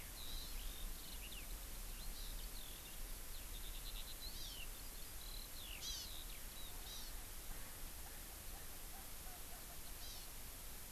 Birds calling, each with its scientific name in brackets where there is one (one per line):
Erckel's Francolin (Pternistis erckelii)
Hawaii Amakihi (Chlorodrepanis virens)
Eurasian Skylark (Alauda arvensis)